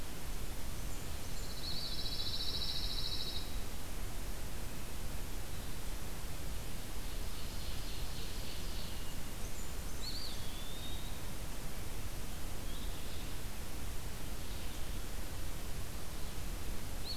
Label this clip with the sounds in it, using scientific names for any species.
Setophaga fusca, Setophaga pinus, Contopus virens, Seiurus aurocapilla, Vireo olivaceus